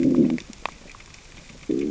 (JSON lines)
{"label": "biophony, growl", "recorder": "SoundTrap 600 or HydroMoth"}